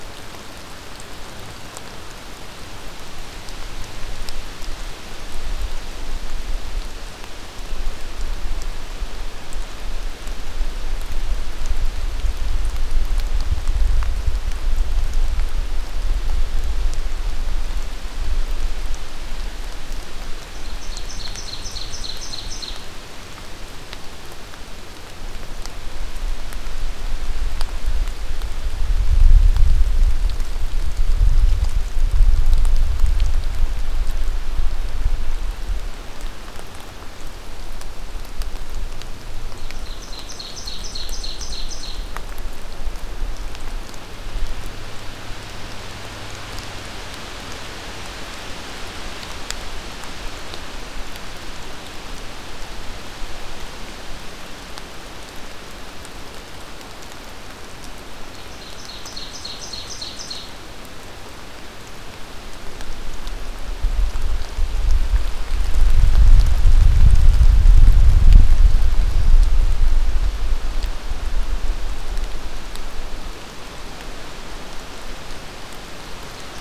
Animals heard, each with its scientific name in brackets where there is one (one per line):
Ovenbird (Seiurus aurocapilla)